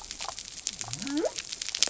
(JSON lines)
{"label": "biophony", "recorder": "SoundTrap 300"}